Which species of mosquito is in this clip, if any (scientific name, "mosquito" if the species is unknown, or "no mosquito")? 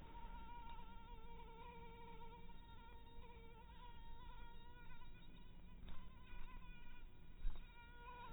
mosquito